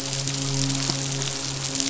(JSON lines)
{"label": "biophony, midshipman", "recorder": "SoundTrap 500"}